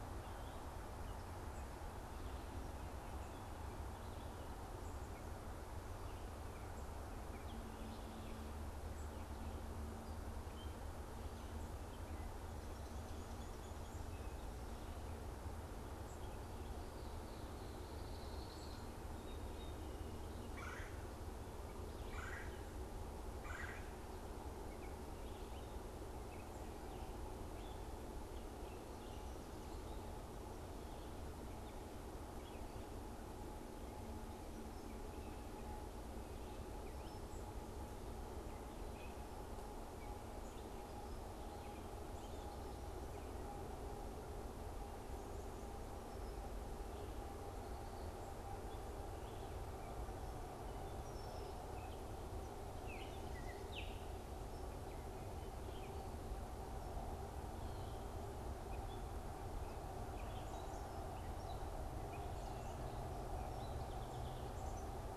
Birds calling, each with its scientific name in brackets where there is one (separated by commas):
Baltimore Oriole (Icterus galbula), Red-bellied Woodpecker (Melanerpes carolinus), Red-winged Blackbird (Agelaius phoeniceus)